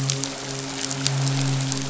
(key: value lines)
label: biophony, midshipman
recorder: SoundTrap 500